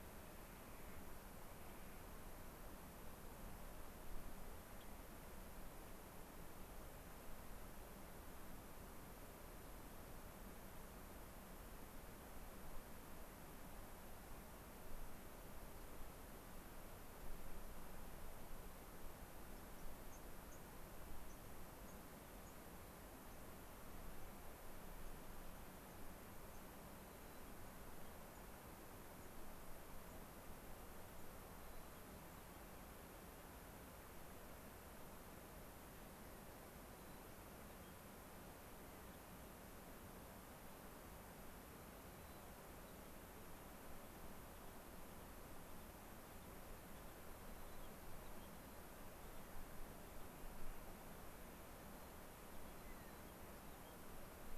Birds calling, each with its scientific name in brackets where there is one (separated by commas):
Clark's Nutcracker (Nucifraga columbiana), White-crowned Sparrow (Zonotrichia leucophrys), unidentified bird